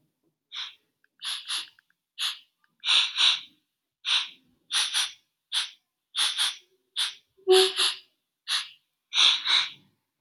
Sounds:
Sniff